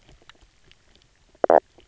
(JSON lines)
{"label": "biophony, knock croak", "recorder": "SoundTrap 300"}